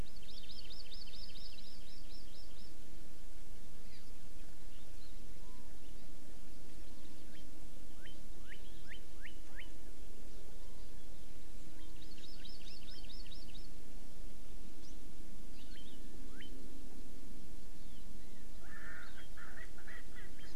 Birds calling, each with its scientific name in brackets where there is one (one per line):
Erckel's Francolin (Pternistis erckelii)
Hawaii Amakihi (Chlorodrepanis virens)
Northern Cardinal (Cardinalis cardinalis)